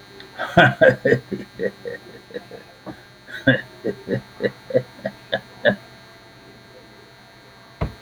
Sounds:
Laughter